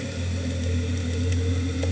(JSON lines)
{"label": "anthrophony, boat engine", "recorder": "HydroMoth"}